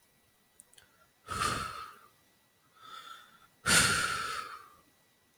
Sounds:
Sigh